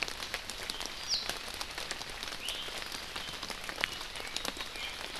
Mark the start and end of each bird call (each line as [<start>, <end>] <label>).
[1.10, 1.20] Warbling White-eye (Zosterops japonicus)
[2.40, 2.70] Iiwi (Drepanis coccinea)
[4.70, 5.00] Iiwi (Drepanis coccinea)